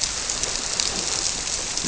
{"label": "biophony", "recorder": "SoundTrap 300"}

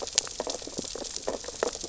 {"label": "biophony, sea urchins (Echinidae)", "recorder": "SoundTrap 600 or HydroMoth"}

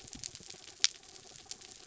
{"label": "anthrophony, mechanical", "recorder": "SoundTrap 300"}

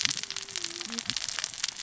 {"label": "biophony, cascading saw", "recorder": "SoundTrap 600 or HydroMoth"}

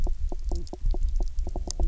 {"label": "biophony, knock croak", "recorder": "SoundTrap 300"}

